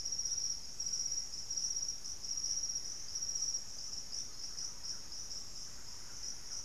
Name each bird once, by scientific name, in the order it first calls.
Taraba major, Legatus leucophaius, Campylorhynchus turdinus, Lipaugus vociferans